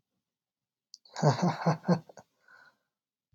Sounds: Laughter